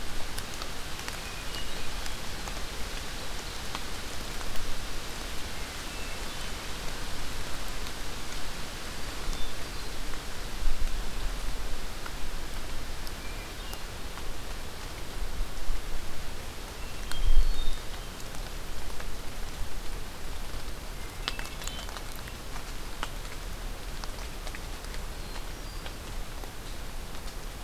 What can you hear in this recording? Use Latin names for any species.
Catharus guttatus